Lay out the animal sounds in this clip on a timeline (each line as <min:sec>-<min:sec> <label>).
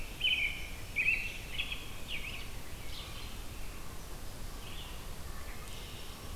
0:00.0-0:02.5 American Robin (Turdus migratorius)
0:00.0-0:06.4 Red-eyed Vireo (Vireo olivaceus)
0:00.1-0:01.4 Black-throated Green Warbler (Setophaga virens)
0:05.2-0:06.2 Red-winged Blackbird (Agelaius phoeniceus)
0:05.6-0:06.4 Black-throated Green Warbler (Setophaga virens)